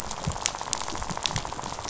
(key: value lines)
label: biophony, rattle
recorder: SoundTrap 500